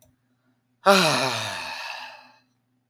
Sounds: Sigh